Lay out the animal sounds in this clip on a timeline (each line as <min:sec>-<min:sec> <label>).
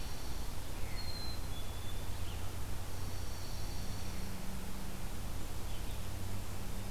0:00.0-0:00.5 Dark-eyed Junco (Junco hyemalis)
0:00.0-0:06.9 Red-eyed Vireo (Vireo olivaceus)
0:00.9-0:02.2 Black-capped Chickadee (Poecile atricapillus)
0:02.8-0:04.4 Dark-eyed Junco (Junco hyemalis)